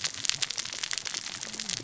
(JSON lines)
{"label": "biophony, cascading saw", "recorder": "SoundTrap 600 or HydroMoth"}